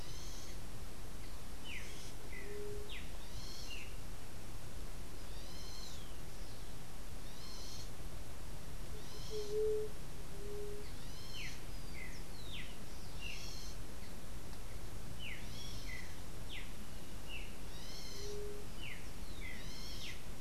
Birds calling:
unidentified bird, White-tipped Dove (Leptotila verreauxi), Streaked Saltator (Saltator striatipectus)

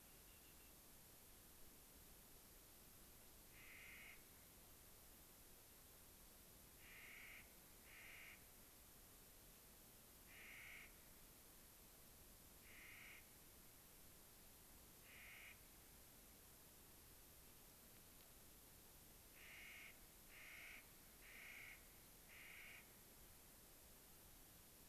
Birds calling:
Clark's Nutcracker (Nucifraga columbiana), Rock Wren (Salpinctes obsoletus)

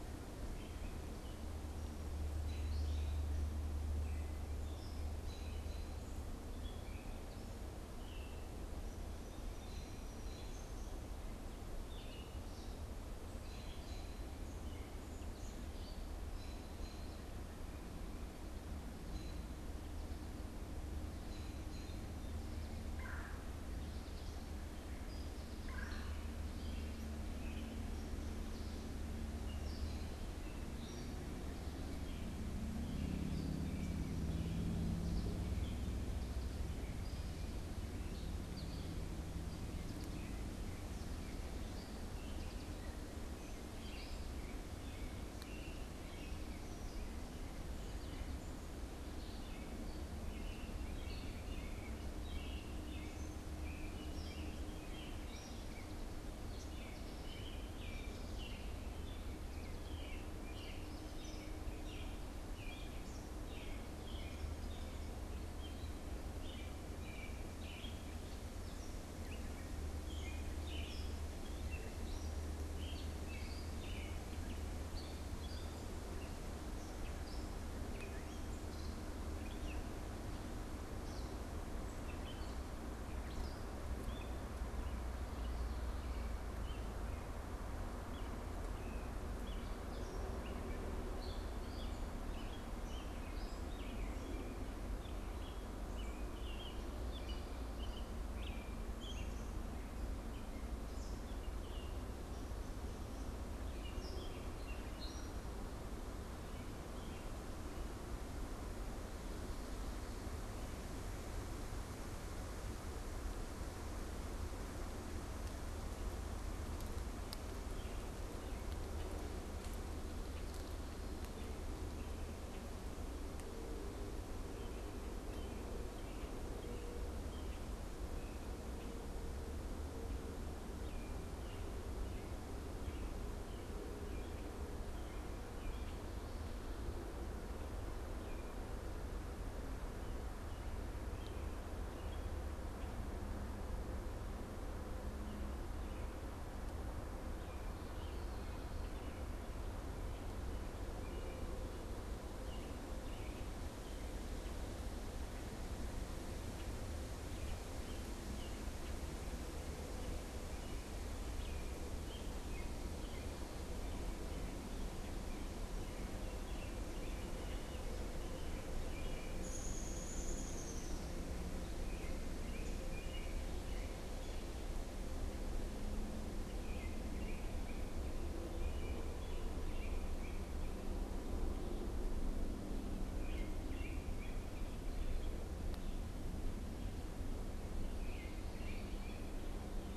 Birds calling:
Red-winged Blackbird (Agelaius phoeniceus), American Robin (Turdus migratorius), Gray Catbird (Dumetella carolinensis), American Goldfinch (Spinus tristis), Downy Woodpecker (Dryobates pubescens), Common Yellowthroat (Geothlypis trichas), Red-bellied Woodpecker (Melanerpes carolinus)

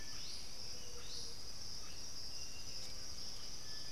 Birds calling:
Undulated Tinamou (Crypturellus undulatus), Buff-throated Saltator (Saltator maximus), Thrush-like Wren (Campylorhynchus turdinus), Striped Cuckoo (Tapera naevia), White-winged Becard (Pachyramphus polychopterus), Blue-headed Parrot (Pionus menstruus)

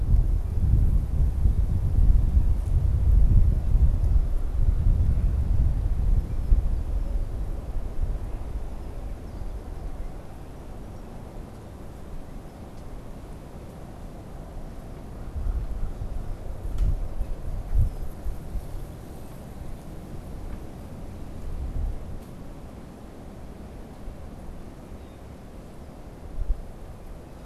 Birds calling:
American Crow (Corvus brachyrhynchos), Red-winged Blackbird (Agelaius phoeniceus)

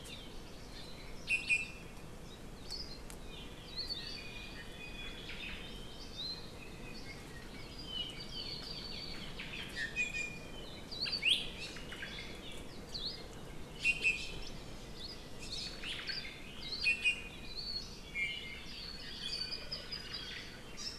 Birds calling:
Hawaii Amakihi (Chlorodrepanis virens), Iiwi (Drepanis coccinea), Hawaii Creeper (Loxops mana), Omao (Myadestes obscurus)

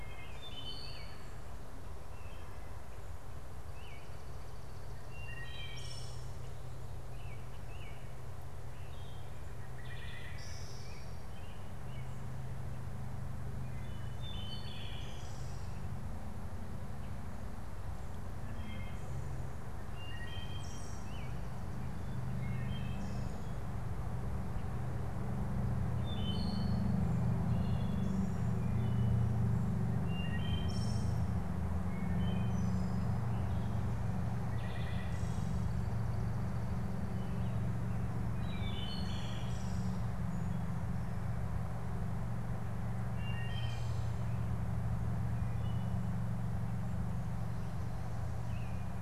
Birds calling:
American Robin (Turdus migratorius), Wood Thrush (Hylocichla mustelina), unidentified bird

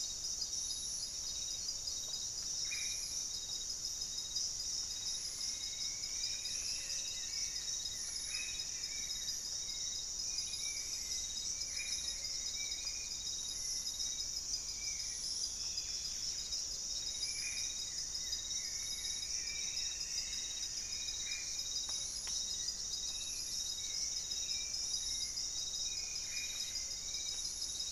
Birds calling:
Spot-winged Antshrike (Pygiptila stellaris), Buff-breasted Wren (Cantorchilus leucotis), Black-faced Antthrush (Formicarius analis), Striped Woodcreeper (Xiphorhynchus obsoletus), Hauxwell's Thrush (Turdus hauxwelli), Goeldi's Antbird (Akletos goeldii)

